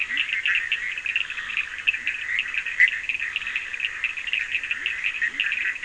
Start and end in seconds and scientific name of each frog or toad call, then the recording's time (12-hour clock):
0.0	5.8	Boana bischoffi
0.0	5.8	Sphaenorhynchus surdus
2.0	2.2	Leptodactylus latrans
4.4	5.8	Leptodactylus latrans
12:00am